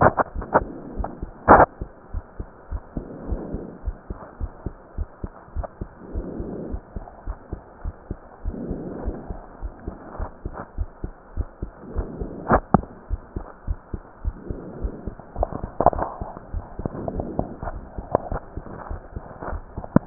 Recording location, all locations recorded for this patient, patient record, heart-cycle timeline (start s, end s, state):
pulmonary valve (PV)
aortic valve (AV)+pulmonary valve (PV)+tricuspid valve (TV)+mitral valve (MV)
#Age: Child
#Sex: Male
#Height: 133.0 cm
#Weight: 33.1 kg
#Pregnancy status: False
#Murmur: Absent
#Murmur locations: nan
#Most audible location: nan
#Systolic murmur timing: nan
#Systolic murmur shape: nan
#Systolic murmur grading: nan
#Systolic murmur pitch: nan
#Systolic murmur quality: nan
#Diastolic murmur timing: nan
#Diastolic murmur shape: nan
#Diastolic murmur grading: nan
#Diastolic murmur pitch: nan
#Diastolic murmur quality: nan
#Outcome: Normal
#Campaign: 2015 screening campaign
0.00	1.95	unannotated
1.95	2.12	diastole
2.12	2.24	S1
2.24	2.38	systole
2.38	2.48	S2
2.48	2.70	diastole
2.70	2.82	S1
2.82	2.92	systole
2.92	3.04	S2
3.04	3.24	diastole
3.24	3.40	S1
3.40	3.50	systole
3.50	3.62	S2
3.62	3.82	diastole
3.82	3.96	S1
3.96	4.06	systole
4.06	4.20	S2
4.20	4.42	diastole
4.42	4.52	S1
4.52	4.62	systole
4.62	4.74	S2
4.74	4.96	diastole
4.96	5.10	S1
5.10	5.22	systole
5.22	5.32	S2
5.32	5.54	diastole
5.54	5.66	S1
5.66	5.80	systole
5.80	5.88	S2
5.88	6.10	diastole
6.10	6.26	S1
6.26	6.36	systole
6.36	6.48	S2
6.48	6.70	diastole
6.70	6.82	S1
6.82	6.94	systole
6.94	7.06	S2
7.06	7.26	diastole
7.26	7.38	S1
7.38	7.50	systole
7.50	7.62	S2
7.62	7.84	diastole
7.84	7.94	S1
7.94	8.06	systole
8.06	8.18	S2
8.18	8.44	diastole
8.44	8.56	S1
8.56	8.68	systole
8.68	8.84	S2
8.84	9.04	diastole
9.04	9.16	S1
9.16	9.28	systole
9.28	9.40	S2
9.40	9.62	diastole
9.62	9.74	S1
9.74	9.86	systole
9.86	9.96	S2
9.96	10.18	diastole
10.18	10.30	S1
10.30	10.44	systole
10.44	10.54	S2
10.54	10.78	diastole
10.78	10.90	S1
10.90	11.02	systole
11.02	11.14	S2
11.14	11.36	diastole
11.36	11.50	S1
11.50	11.62	systole
11.62	11.72	S2
11.72	11.96	diastole
11.96	12.07	S1
12.07	20.06	unannotated